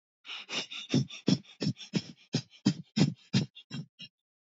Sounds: Sniff